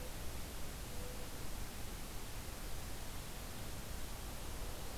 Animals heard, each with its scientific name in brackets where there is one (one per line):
Mourning Dove (Zenaida macroura)